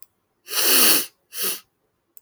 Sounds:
Sniff